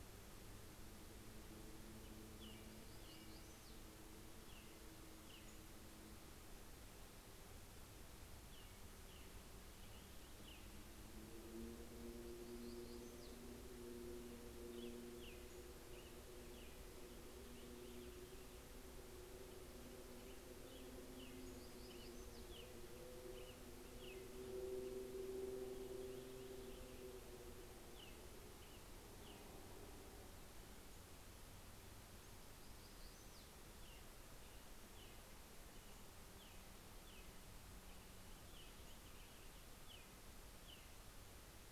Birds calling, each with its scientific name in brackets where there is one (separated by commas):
Pacific-slope Flycatcher (Empidonax difficilis), Purple Finch (Haemorhous purpureus), Black-throated Gray Warbler (Setophaga nigrescens), American Robin (Turdus migratorius)